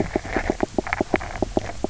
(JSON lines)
{"label": "biophony, knock croak", "recorder": "SoundTrap 300"}